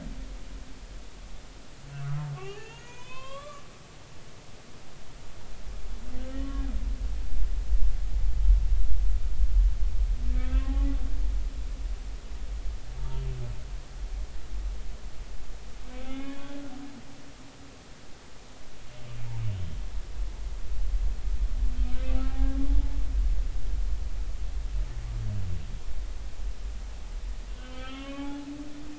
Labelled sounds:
2.3	3.9	humpback whale, 0.93 to 6.6 kHz
6.3	6.6	humpback whale, 1.1 to 3.1 kHz
11.4	11.7	humpback whale, 1.2 to 1.7 kHz
16.0	16.6	humpback whale, 0.80 to 3.6 kHz
22.3	22.6	humpback whale, 0.80 to 0.86 kHz
27.6	28.3	humpback whale, 1.0 to 3.3 kHz

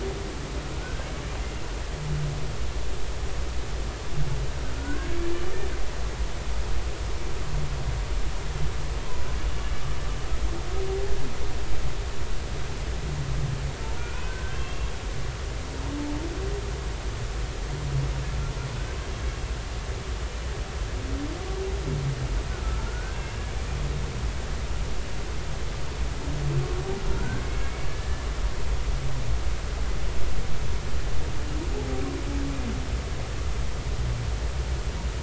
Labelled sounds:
0.8	1.1	humpback whale, 1.4 to 1.6 kHz
4.7	5.3	humpback whale, 0.93 to 2.4 kHz
14.0	14.9	humpback whale, 1.4 to 3.3 kHz
22.9	23.5	humpback whale, 1.3 to 2.8 kHz
27.2	28.3	humpback whale, 1.3 to 2.3 kHz

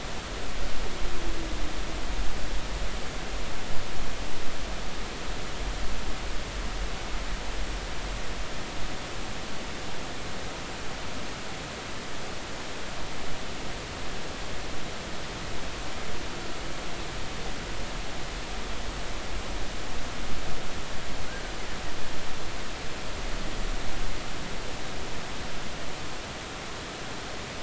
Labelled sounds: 21.3	21.5	killer whale, Bigg's (transient), 1.4 to 1.7 kHz

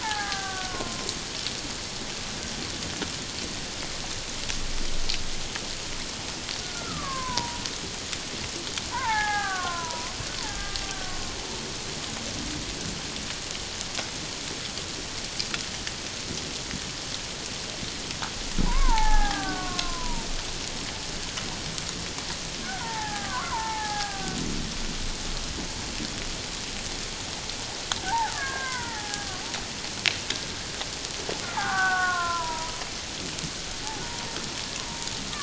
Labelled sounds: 0.0	1.1	killer whale, Bigg's (transient), 0.78 to 1.8 kHz
6.6	7.6	killer whale, Bigg's (transient), 0.88 to 1.7 kHz
8.9	10.1	killer whale, Bigg's (transient), 0.78 to 2.2 kHz
10.4	10.8	killer whale, Bigg's (transient), 1.6 to 1.8 kHz
11.1	11.3	killer whale, Bigg's (transient), 1.0 to 1.1 kHz
18.7	20.3	killer whale, Bigg's (transient), 0.78 to 1.9 kHz
22.6	24.4	killer whale, Bigg's (transient), 0.78 to 1.9 kHz
28.0	29.4	killer whale, Bigg's (transient), 0.78 to 2.2 kHz
31.6	32.7	killer whale, Bigg's (transient), 0.78 to 1.7 kHz
33.8	35.1	killer whale, Bigg's (transient), 0.78 to 1.1 kHz

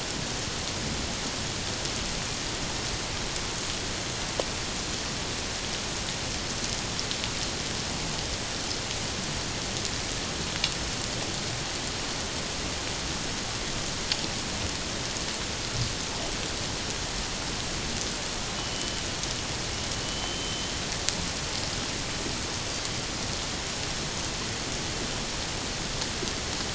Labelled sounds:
18.6	19.0	killer whale, 2.9 to 3.1 kHz
20.0	20.7	killer whale, 2.9 to 3.2 kHz

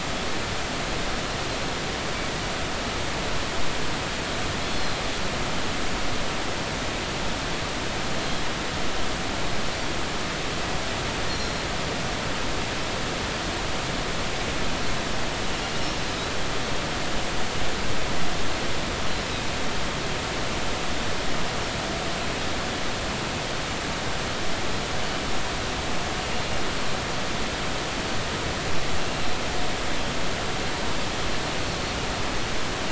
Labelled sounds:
4.6	5.0	Pacific white-sided dolphin, 4.0 to 4.4 kHz
11.3	11.5	Pacific white-sided dolphin, 4.1 to 5.7 kHz
29.0	29.3	Pacific white-sided dolphin, 2.7 to 2.8 kHz

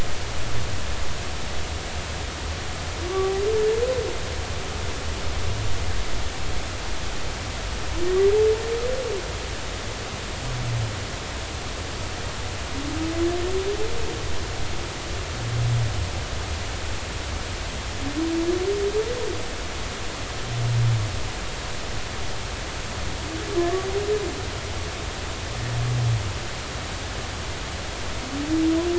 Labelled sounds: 3.1	3.3	humpback whale, 1.1 to 1.2 kHz
23.6	23.9	humpback whale, 0.99 to 1.2 kHz

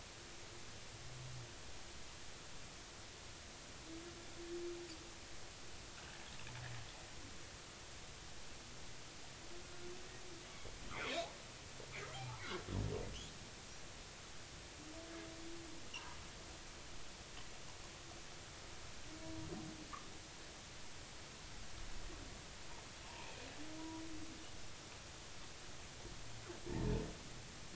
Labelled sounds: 9.6	9.9	humpback whale, 1.4 to 1.5 kHz
10.9	11.2	humpback whale, 2.0 to 2.6 kHz
23.2	23.5	humpback whale, 2.3 to 2.7 kHz

